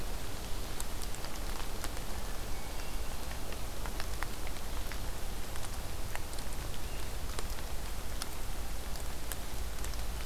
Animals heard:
forest ambience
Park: Acadia National Park